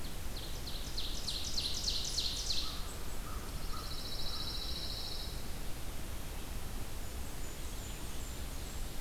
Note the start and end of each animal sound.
0.0s-3.0s: Ovenbird (Seiurus aurocapilla)
2.4s-4.7s: American Crow (Corvus brachyrhynchos)
3.4s-5.4s: Pine Warbler (Setophaga pinus)
6.8s-9.0s: Blackburnian Warbler (Setophaga fusca)

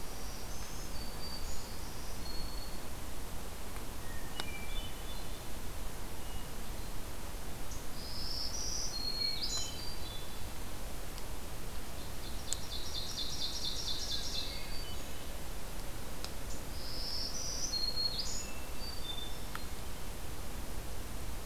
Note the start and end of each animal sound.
0.0s-3.0s: Black-throated Green Warbler (Setophaga virens)
4.1s-5.5s: Hermit Thrush (Catharus guttatus)
7.8s-9.7s: Black-throated Green Warbler (Setophaga virens)
9.1s-10.3s: Hermit Thrush (Catharus guttatus)
12.0s-14.6s: Ovenbird (Seiurus aurocapilla)
13.8s-15.3s: Black-throated Green Warbler (Setophaga virens)
14.0s-15.4s: Hermit Thrush (Catharus guttatus)
16.7s-18.5s: Black-throated Green Warbler (Setophaga virens)
18.3s-19.6s: Hermit Thrush (Catharus guttatus)

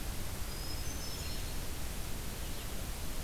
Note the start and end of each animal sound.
0.2s-1.9s: Hermit Thrush (Catharus guttatus)

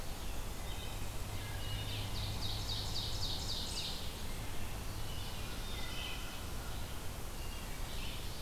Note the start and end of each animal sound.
0.0s-1.2s: Eastern Wood-Pewee (Contopus virens)
0.0s-8.4s: Red-eyed Vireo (Vireo olivaceus)
0.3s-2.1s: Wood Thrush (Hylocichla mustelina)
1.5s-4.1s: Ovenbird (Seiurus aurocapilla)
4.9s-6.5s: Wood Thrush (Hylocichla mustelina)
7.2s-8.1s: Wood Thrush (Hylocichla mustelina)

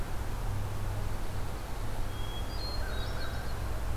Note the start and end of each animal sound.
1.0s-2.1s: Pine Warbler (Setophaga pinus)
2.0s-3.5s: Hermit Thrush (Catharus guttatus)
2.7s-3.5s: American Crow (Corvus brachyrhynchos)

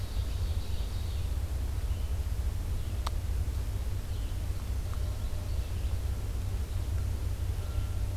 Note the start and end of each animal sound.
0.0s-1.2s: Ovenbird (Seiurus aurocapilla)
0.0s-8.2s: Red-eyed Vireo (Vireo olivaceus)
4.4s-6.0s: Ovenbird (Seiurus aurocapilla)

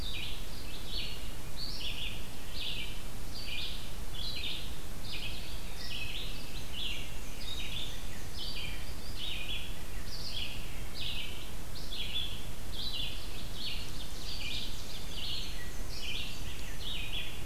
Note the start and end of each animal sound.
0.0s-17.4s: Red-eyed Vireo (Vireo olivaceus)
5.1s-6.5s: Eastern Wood-Pewee (Contopus virens)
6.5s-8.4s: Black-and-white Warbler (Mniotilta varia)
12.9s-15.2s: Ovenbird (Seiurus aurocapilla)
15.2s-16.8s: Black-and-white Warbler (Mniotilta varia)

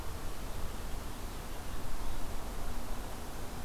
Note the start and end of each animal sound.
0.5s-2.3s: Purple Finch (Haemorhous purpureus)

